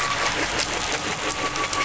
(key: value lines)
label: anthrophony, boat engine
recorder: SoundTrap 500